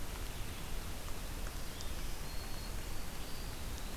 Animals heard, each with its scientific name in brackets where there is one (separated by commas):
Black-throated Green Warbler (Setophaga virens), Red-eyed Vireo (Vireo olivaceus), Eastern Wood-Pewee (Contopus virens)